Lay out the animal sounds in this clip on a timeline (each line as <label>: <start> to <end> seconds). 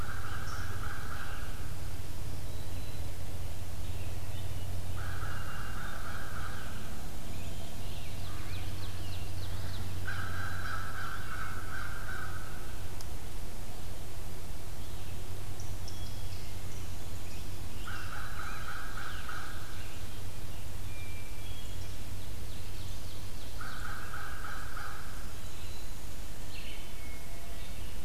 American Crow (Corvus brachyrhynchos): 0.0 to 1.9 seconds
Red-eyed Vireo (Vireo olivaceus): 0.0 to 28.0 seconds
Black-throated Green Warbler (Setophaga virens): 1.8 to 3.2 seconds
Scarlet Tanager (Piranga olivacea): 3.0 to 4.7 seconds
American Crow (Corvus brachyrhynchos): 4.8 to 7.0 seconds
Hermit Thrush (Catharus guttatus): 4.9 to 6.1 seconds
Scarlet Tanager (Piranga olivacea): 7.0 to 9.6 seconds
Ovenbird (Seiurus aurocapilla): 7.5 to 10.0 seconds
American Crow (Corvus brachyrhynchos): 8.2 to 8.7 seconds
American Crow (Corvus brachyrhynchos): 10.0 to 12.9 seconds
Hermit Thrush (Catharus guttatus): 15.8 to 17.0 seconds
Scarlet Tanager (Piranga olivacea): 17.2 to 20.2 seconds
American Crow (Corvus brachyrhynchos): 17.8 to 20.0 seconds
Black-throated Green Warbler (Setophaga virens): 18.0 to 18.8 seconds
Hermit Thrush (Catharus guttatus): 20.8 to 22.1 seconds
Ovenbird (Seiurus aurocapilla): 22.2 to 23.7 seconds
American Crow (Corvus brachyrhynchos): 23.5 to 25.2 seconds
Black-throated Green Warbler (Setophaga virens): 25.4 to 26.0 seconds
Hermit Thrush (Catharus guttatus): 26.7 to 27.8 seconds